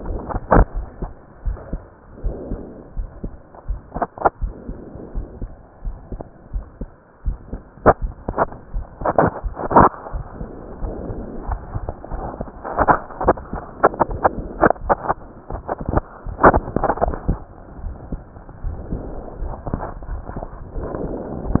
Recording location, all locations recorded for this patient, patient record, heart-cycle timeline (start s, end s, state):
pulmonary valve (PV)
aortic valve (AV)+pulmonary valve (PV)+tricuspid valve (TV)+mitral valve (MV)
#Age: Child
#Sex: Male
#Height: 129.0 cm
#Weight: 23.5 kg
#Pregnancy status: False
#Murmur: Absent
#Murmur locations: nan
#Most audible location: nan
#Systolic murmur timing: nan
#Systolic murmur shape: nan
#Systolic murmur grading: nan
#Systolic murmur pitch: nan
#Systolic murmur quality: nan
#Diastolic murmur timing: nan
#Diastolic murmur shape: nan
#Diastolic murmur grading: nan
#Diastolic murmur pitch: nan
#Diastolic murmur quality: nan
#Outcome: Abnormal
#Campaign: 2015 screening campaign
0.00	0.72	unannotated
0.72	0.88	S1
0.88	1.00	systole
1.00	1.10	S2
1.10	1.42	diastole
1.42	1.58	S1
1.58	1.70	systole
1.70	1.82	S2
1.82	2.20	diastole
2.20	2.36	S1
2.36	2.50	systole
2.50	2.60	S2
2.60	2.96	diastole
2.96	3.10	S1
3.10	3.22	systole
3.22	3.32	S2
3.32	3.68	diastole
3.68	3.80	S1
3.80	3.96	systole
3.96	4.08	S2
4.08	4.42	diastole
4.42	4.54	S1
4.54	4.68	systole
4.68	4.78	S2
4.78	5.16	diastole
5.16	5.28	S1
5.28	5.40	systole
5.40	5.52	S2
5.52	5.84	diastole
5.84	5.98	S1
5.98	6.10	systole
6.10	6.18	S2
6.18	6.50	diastole
6.50	6.66	S1
6.66	6.80	systole
6.80	6.88	S2
6.88	7.22	diastole
7.22	7.38	S1
7.38	7.50	systole
7.50	7.60	S2
7.60	7.86	diastole
7.86	21.60	unannotated